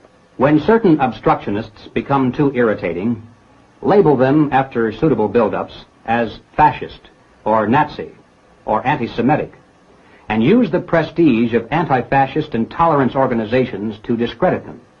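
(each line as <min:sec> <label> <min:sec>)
0:00.4 A man is speaking. 0:09.5
0:10.3 A man is speaking. 0:14.9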